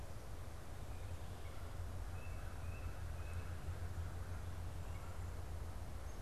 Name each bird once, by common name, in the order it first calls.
American Crow, Tufted Titmouse, Red-bellied Woodpecker